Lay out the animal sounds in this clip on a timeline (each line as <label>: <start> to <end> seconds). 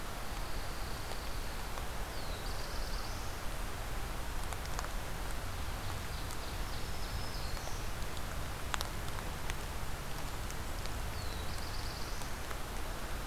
Pine Warbler (Setophaga pinus): 0.0 to 1.8 seconds
Black-throated Blue Warbler (Setophaga caerulescens): 1.9 to 3.4 seconds
Ovenbird (Seiurus aurocapilla): 5.3 to 7.6 seconds
Black-throated Green Warbler (Setophaga virens): 6.4 to 8.3 seconds
Black-throated Blue Warbler (Setophaga caerulescens): 10.9 to 12.5 seconds